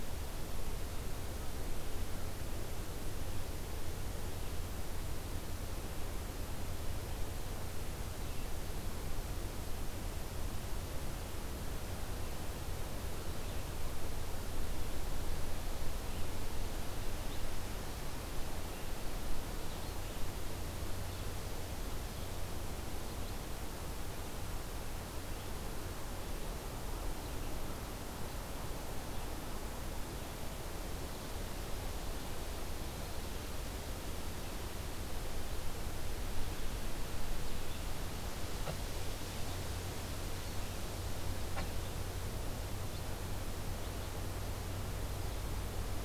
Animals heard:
forest ambience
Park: Acadia National Park